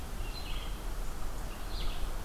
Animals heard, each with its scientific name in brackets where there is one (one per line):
Red-eyed Vireo (Vireo olivaceus)